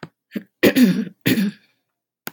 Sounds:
Throat clearing